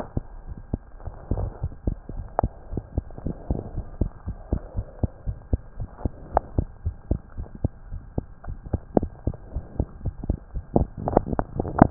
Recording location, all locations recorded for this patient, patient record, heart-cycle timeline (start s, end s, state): tricuspid valve (TV)
aortic valve (AV)+pulmonary valve (PV)+tricuspid valve (TV)+mitral valve (MV)
#Age: Child
#Sex: Male
#Height: 95.0 cm
#Weight: 15.9 kg
#Pregnancy status: False
#Murmur: Absent
#Murmur locations: nan
#Most audible location: nan
#Systolic murmur timing: nan
#Systolic murmur shape: nan
#Systolic murmur grading: nan
#Systolic murmur pitch: nan
#Systolic murmur quality: nan
#Diastolic murmur timing: nan
#Diastolic murmur shape: nan
#Diastolic murmur grading: nan
#Diastolic murmur pitch: nan
#Diastolic murmur quality: nan
#Outcome: Normal
#Campaign: 2015 screening campaign
0.00	3.71	unannotated
3.71	3.86	S1
3.86	3.98	systole
3.98	4.12	S2
4.12	4.24	diastole
4.24	4.38	S1
4.38	4.50	systole
4.50	4.64	S2
4.64	4.73	diastole
4.73	4.86	S1
4.86	4.99	systole
4.99	5.12	S2
5.12	5.26	diastole
5.26	5.38	S1
5.38	5.50	systole
5.50	5.62	S2
5.62	5.76	diastole
5.76	5.88	S1
5.88	6.04	systole
6.04	6.14	S2
6.14	6.31	diastole
6.31	6.44	S1
6.44	6.56	systole
6.56	6.70	S2
6.70	6.84	diastole
6.84	6.96	S1
6.96	7.08	systole
7.08	7.22	S2
7.22	7.35	diastole
7.35	7.48	S1
7.48	7.60	systole
7.60	7.74	S2
7.74	7.90	diastole
7.90	8.02	S1
8.02	8.15	systole
8.15	8.28	S2
8.28	8.44	diastole
8.44	8.60	S1
8.60	8.70	systole
8.70	8.82	S2
8.82	8.96	diastole
8.96	9.10	S1
9.10	9.22	systole
9.22	9.36	S2
9.36	9.54	diastole
9.54	9.66	S1
9.66	9.78	systole
9.78	9.86	S2
9.86	10.02	diastole
10.02	10.14	S1
10.14	10.28	systole
10.28	10.40	S2
10.40	10.54	diastole
10.54	10.64	S1
10.64	11.90	unannotated